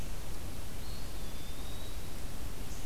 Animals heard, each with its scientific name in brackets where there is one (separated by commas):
Eastern Wood-Pewee (Contopus virens), Red-eyed Vireo (Vireo olivaceus)